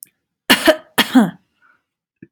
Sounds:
Cough